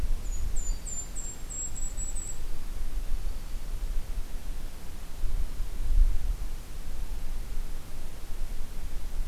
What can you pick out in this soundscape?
Golden-crowned Kinglet, Black-throated Green Warbler